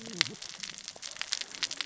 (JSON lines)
{"label": "biophony, cascading saw", "recorder": "SoundTrap 600 or HydroMoth"}